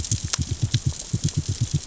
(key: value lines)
label: biophony, knock
recorder: SoundTrap 600 or HydroMoth